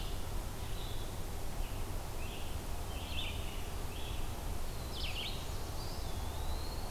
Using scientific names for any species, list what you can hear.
Vireo olivaceus, Setophaga caerulescens, Contopus virens